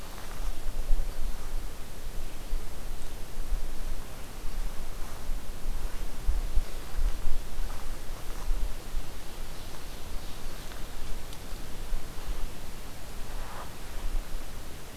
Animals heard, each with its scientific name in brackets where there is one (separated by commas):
Ovenbird (Seiurus aurocapilla)